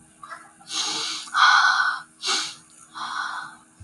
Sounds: Sniff